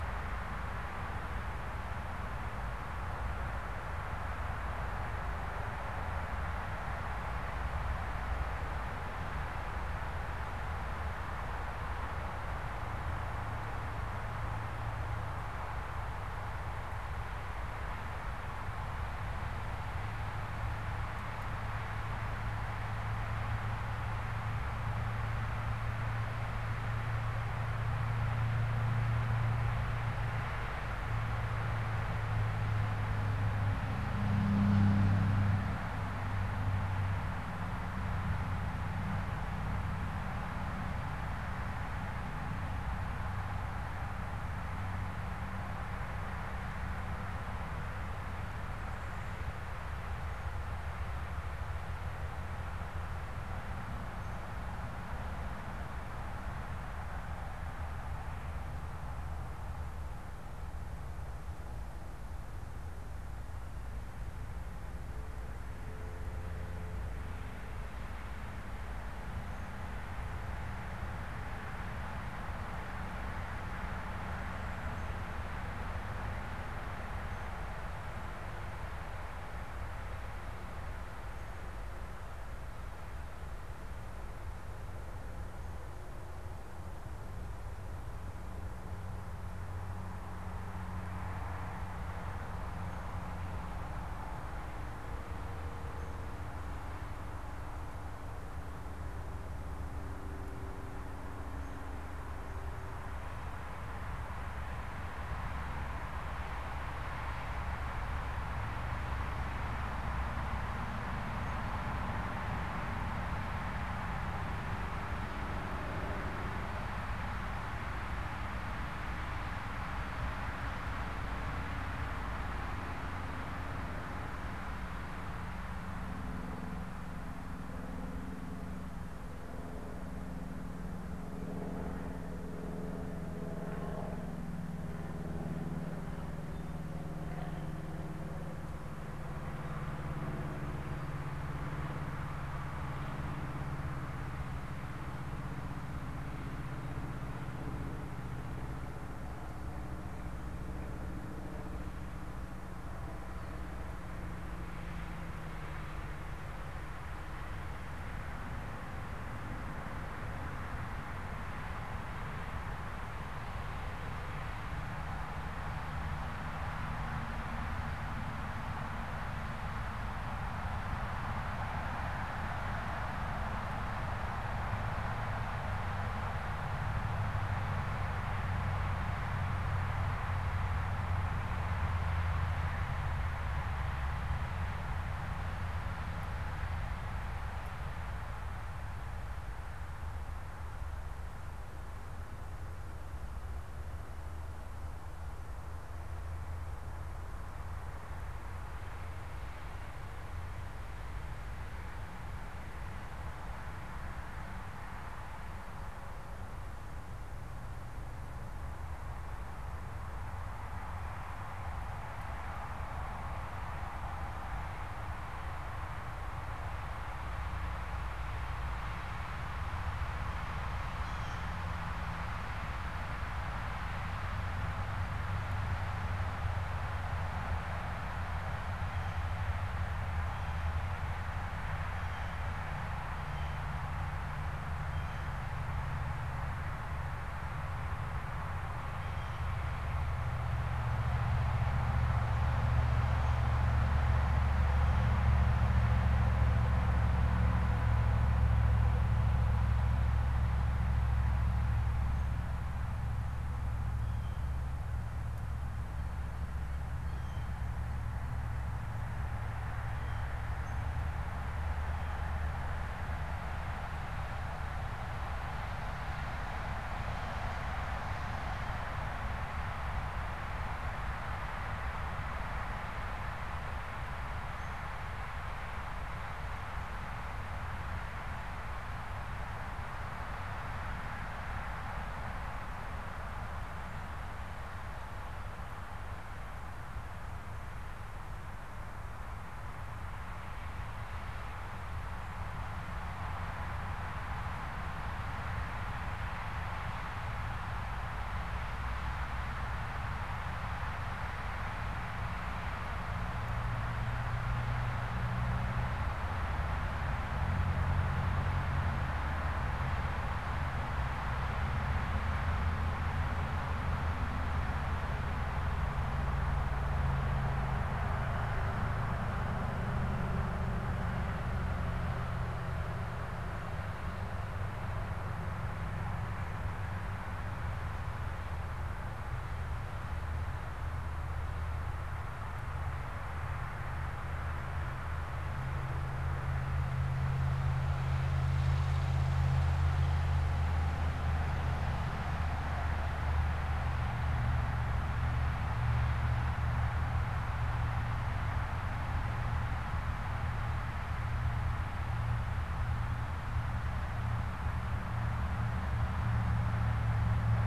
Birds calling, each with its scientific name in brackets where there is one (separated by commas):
Blue Jay (Cyanocitta cristata)